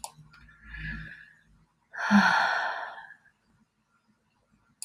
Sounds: Sigh